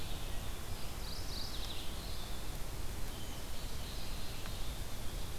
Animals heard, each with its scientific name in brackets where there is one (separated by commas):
Red-eyed Vireo (Vireo olivaceus), Mourning Warbler (Geothlypis philadelphia)